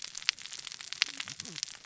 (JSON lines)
{"label": "biophony, cascading saw", "recorder": "SoundTrap 600 or HydroMoth"}